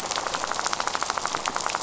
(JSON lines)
{"label": "biophony, rattle", "recorder": "SoundTrap 500"}